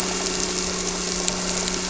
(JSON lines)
{"label": "anthrophony, boat engine", "recorder": "SoundTrap 300"}